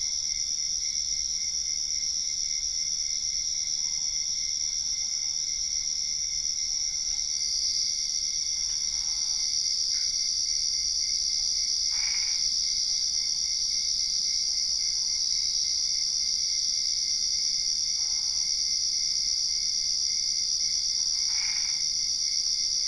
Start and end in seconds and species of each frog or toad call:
8.8	9.6	Boana albopunctata
11.8	12.5	Boana albopunctata
17.9	18.6	Boana albopunctata
21.3	21.9	Boana albopunctata
9:15pm

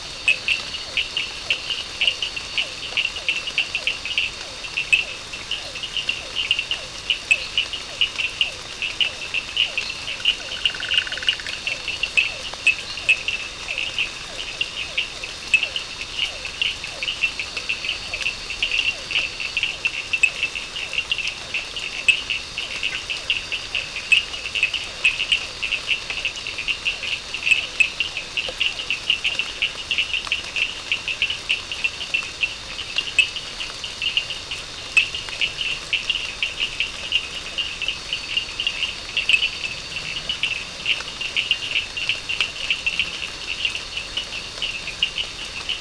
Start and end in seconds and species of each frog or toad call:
0.0	29.7	Physalaemus cuvieri
0.0	45.8	Elachistocleis bicolor
0.0	45.8	Sphaenorhynchus surdus
10.2	11.8	Boana bischoffi
9:15pm

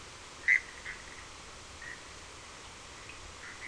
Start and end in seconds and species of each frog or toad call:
0.3	3.6	Boana bischoffi
1:15am

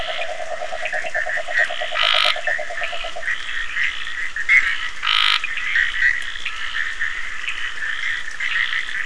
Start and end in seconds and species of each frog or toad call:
0.0	3.4	Rhinella icterica
0.0	5.6	Scinax perereca
0.0	9.0	Boana bischoffi
3.1	3.4	Leptodactylus latrans
12:45am

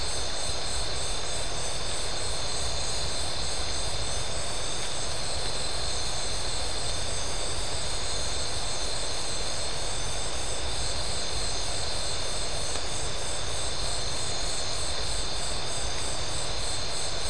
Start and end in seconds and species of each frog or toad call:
none
10:30pm

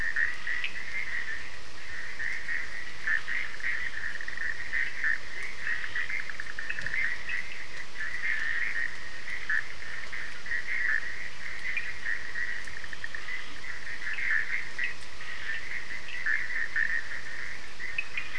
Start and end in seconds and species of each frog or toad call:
0.0	18.3	Boana bischoffi
0.0	18.3	Scinax perereca
5.2	5.6	Leptodactylus latrans
6.5	7.5	Sphaenorhynchus surdus
11.6	12.0	Sphaenorhynchus surdus
13.3	13.8	Leptodactylus latrans
13.9	16.2	Sphaenorhynchus surdus
17.8	18.3	Sphaenorhynchus surdus
1:15am

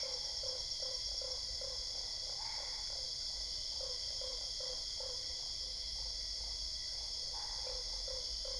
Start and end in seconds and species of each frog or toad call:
0.0	5.2	Boana lundii
7.6	8.5	Boana lundii
9:45pm

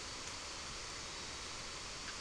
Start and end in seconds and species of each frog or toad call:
1.9	2.2	Boana bischoffi
12:00am

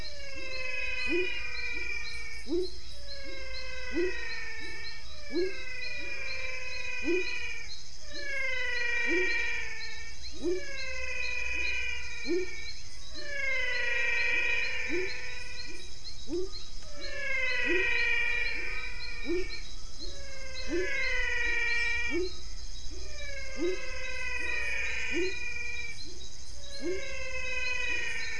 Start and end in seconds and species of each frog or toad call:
0.0	28.3	Dendropsophus nanus
0.0	28.3	Physalaemus albonotatus
1.0	28.3	Leptodactylus labyrinthicus
5.5	5.7	Leptodactylus fuscus
6.8	7.4	Leptodactylus fuscus
10.2	10.4	Leptodactylus fuscus
10.9	12.9	Leptodactylus fuscus
16.0	16.8	Leptodactylus fuscus
6:15pm

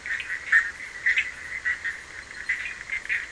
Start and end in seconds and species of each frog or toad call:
0.0	3.3	Boana bischoffi
1.0	1.5	Sphaenorhynchus surdus
2.4	3.3	Sphaenorhynchus surdus
12:30am

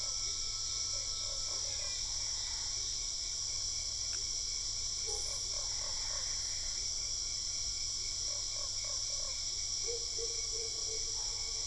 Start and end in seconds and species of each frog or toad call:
0.0	3.3	Dendropsophus cruzi
0.9	2.0	Boana lundii
1.3	2.2	Physalaemus marmoratus
2.3	2.9	Boana albopunctata
5.1	6.3	Boana lundii
5.6	6.9	Boana albopunctata
8.2	9.4	Boana lundii
7:45pm

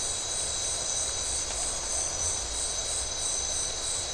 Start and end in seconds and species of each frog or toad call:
none
12:15am

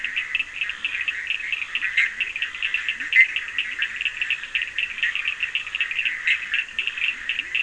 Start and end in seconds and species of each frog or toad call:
0.0	5.1	Leptodactylus latrans
0.0	7.6	Boana bischoffi
0.0	7.6	Sphaenorhynchus surdus
6.6	7.6	Leptodactylus latrans
12:00am

